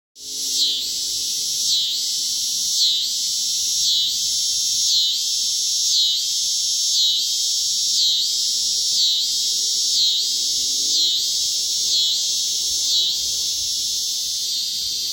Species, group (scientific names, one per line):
Neotibicen pruinosus
Cicadidae